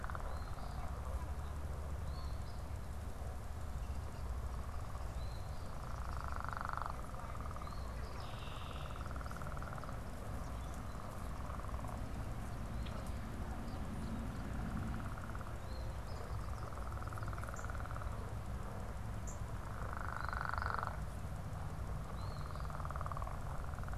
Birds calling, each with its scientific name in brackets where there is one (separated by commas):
Red-winged Blackbird (Agelaius phoeniceus), Eastern Phoebe (Sayornis phoebe), Northern Cardinal (Cardinalis cardinalis)